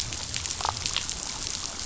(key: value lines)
label: biophony
recorder: SoundTrap 500